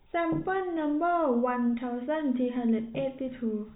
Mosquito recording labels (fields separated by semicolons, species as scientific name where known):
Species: no mosquito; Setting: cup